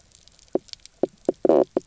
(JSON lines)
{"label": "biophony, knock croak", "recorder": "SoundTrap 300"}